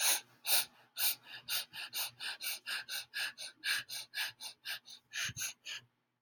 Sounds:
Sniff